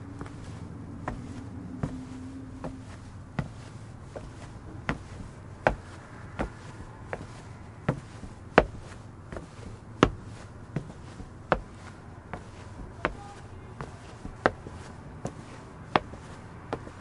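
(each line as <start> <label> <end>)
0.0 Footsteps getting louder. 17.0
0.0 Quiet sounds of a busy street. 17.0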